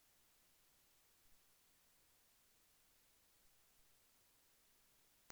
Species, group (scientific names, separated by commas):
Poecilimon thoracicus, Orthoptera